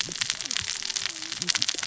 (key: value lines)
label: biophony, cascading saw
recorder: SoundTrap 600 or HydroMoth